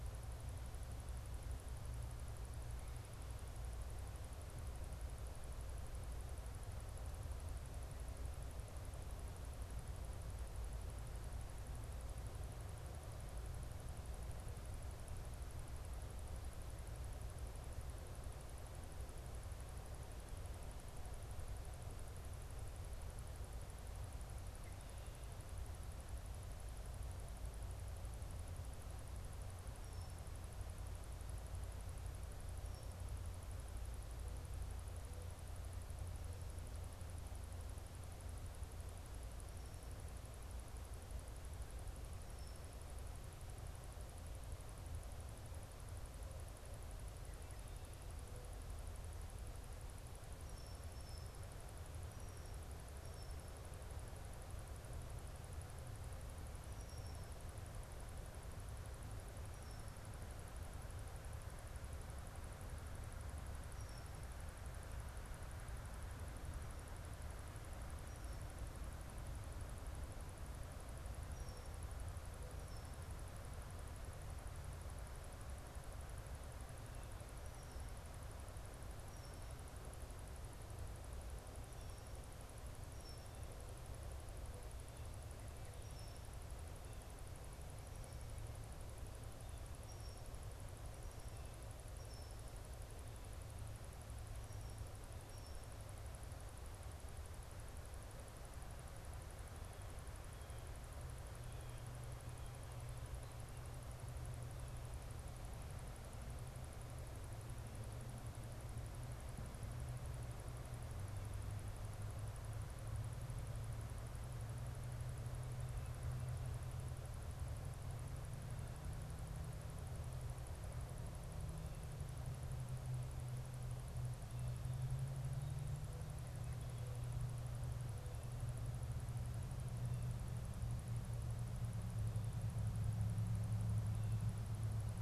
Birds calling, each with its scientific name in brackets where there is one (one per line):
Red-winged Blackbird (Agelaius phoeniceus)